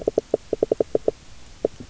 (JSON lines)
{"label": "biophony, knock", "recorder": "SoundTrap 300"}